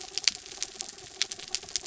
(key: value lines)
label: anthrophony, mechanical
recorder: SoundTrap 300